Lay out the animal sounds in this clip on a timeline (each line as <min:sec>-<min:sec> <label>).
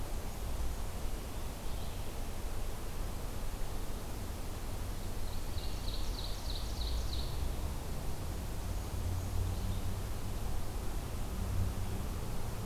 0:05.3-0:07.2 Ovenbird (Seiurus aurocapilla)